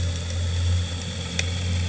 {"label": "anthrophony, boat engine", "recorder": "HydroMoth"}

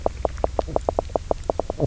{"label": "biophony, knock croak", "recorder": "SoundTrap 300"}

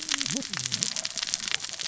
{"label": "biophony, cascading saw", "recorder": "SoundTrap 600 or HydroMoth"}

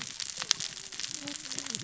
{"label": "biophony, cascading saw", "recorder": "SoundTrap 600 or HydroMoth"}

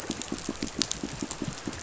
{"label": "biophony, pulse", "recorder": "SoundTrap 500"}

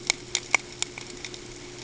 {"label": "ambient", "recorder": "HydroMoth"}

